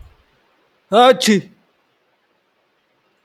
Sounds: Sneeze